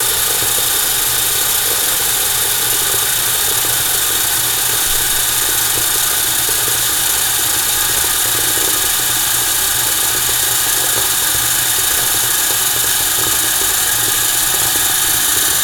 Is there sound consistently throughout the whole audio?
yes